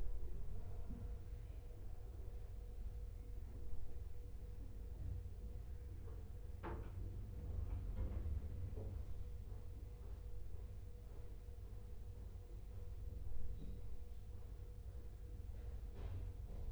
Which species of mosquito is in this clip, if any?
no mosquito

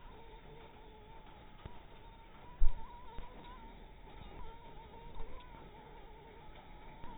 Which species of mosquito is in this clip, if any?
Anopheles dirus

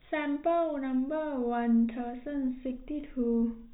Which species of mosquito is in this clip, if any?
no mosquito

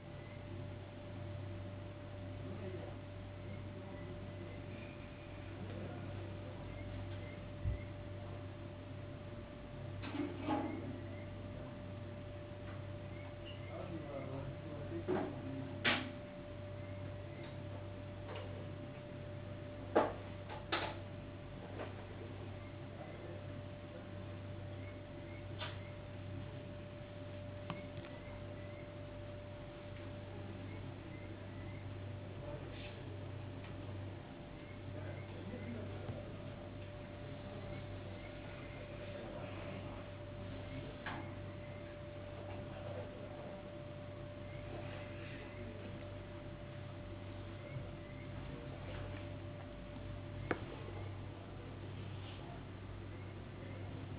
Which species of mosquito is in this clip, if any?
no mosquito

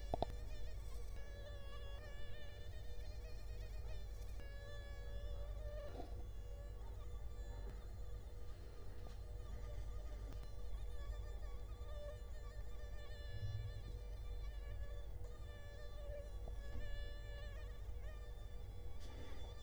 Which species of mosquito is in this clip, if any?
Culex quinquefasciatus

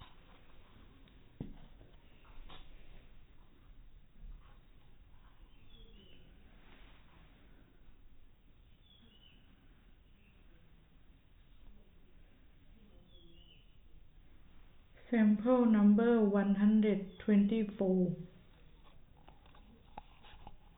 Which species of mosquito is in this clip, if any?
no mosquito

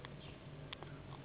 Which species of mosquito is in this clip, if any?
Anopheles gambiae s.s.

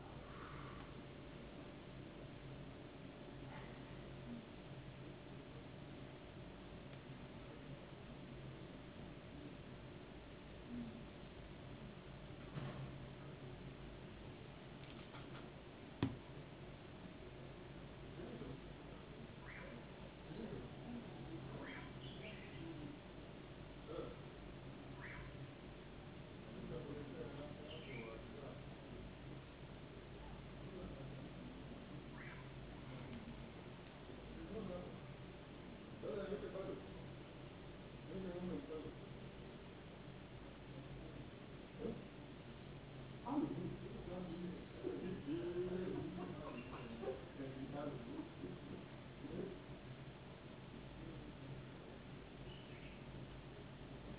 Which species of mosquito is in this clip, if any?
no mosquito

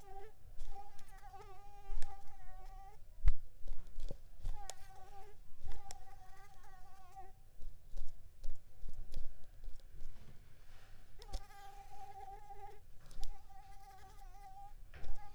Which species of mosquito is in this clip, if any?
Mansonia uniformis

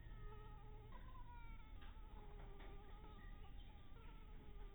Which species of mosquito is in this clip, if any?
Anopheles harrisoni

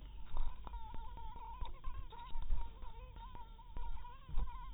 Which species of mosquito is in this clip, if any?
mosquito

